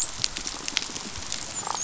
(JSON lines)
{"label": "biophony, dolphin", "recorder": "SoundTrap 500"}